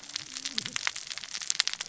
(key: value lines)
label: biophony, cascading saw
recorder: SoundTrap 600 or HydroMoth